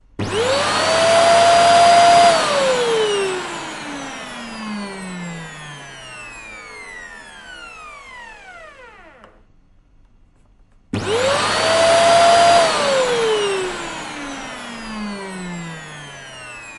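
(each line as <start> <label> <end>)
0.1 A vacuum cleaner starting and increasing in volume while sucking in air. 2.5
2.5 A vacuum cleaner is being turned off and gradually becomes silent until the noise stops. 9.4
10.9 A vacuum cleaner starting and increasing in volume while sucking in air. 12.8
12.8 A vacuum cleaner is being turned off and gradually becomes silent until the noise stops. 16.8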